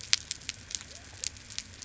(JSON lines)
{"label": "biophony", "recorder": "SoundTrap 300"}